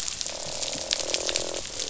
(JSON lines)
{"label": "biophony, croak", "recorder": "SoundTrap 500"}